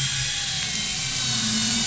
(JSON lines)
{"label": "anthrophony, boat engine", "recorder": "SoundTrap 500"}